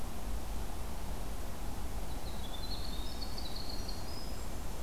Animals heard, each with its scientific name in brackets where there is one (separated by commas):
Winter Wren (Troglodytes hiemalis)